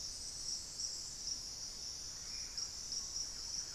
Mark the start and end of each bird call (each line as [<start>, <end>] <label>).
[1.93, 2.63] Ash-throated Gnateater (Conopophaga peruviana)
[2.03, 3.75] Thrush-like Wren (Campylorhynchus turdinus)